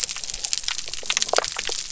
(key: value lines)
label: biophony
recorder: SoundTrap 300